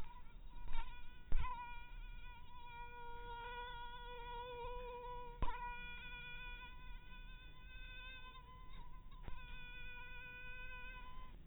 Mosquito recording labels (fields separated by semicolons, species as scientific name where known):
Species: mosquito; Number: one; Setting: cup